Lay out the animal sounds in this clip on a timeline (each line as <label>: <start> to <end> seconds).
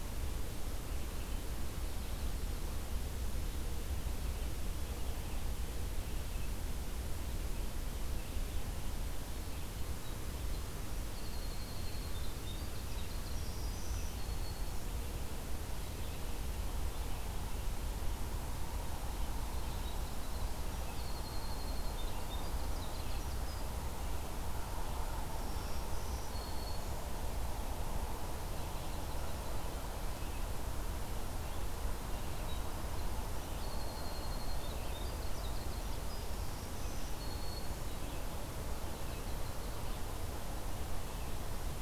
Red-eyed Vireo (Vireo olivaceus): 0.9 to 41.8 seconds
Winter Wren (Troglodytes hiemalis): 10.6 to 14.0 seconds
Black-throated Green Warbler (Setophaga virens): 13.2 to 14.9 seconds
Winter Wren (Troglodytes hiemalis): 19.2 to 23.7 seconds
Black-throated Green Warbler (Setophaga virens): 25.3 to 26.9 seconds
Yellow-rumped Warbler (Setophaga coronata): 28.4 to 29.8 seconds
Winter Wren (Troglodytes hiemalis): 32.0 to 36.3 seconds
Black-throated Green Warbler (Setophaga virens): 36.3 to 37.9 seconds
Yellow-rumped Warbler (Setophaga coronata): 38.7 to 40.1 seconds